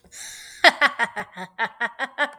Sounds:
Laughter